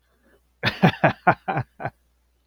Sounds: Laughter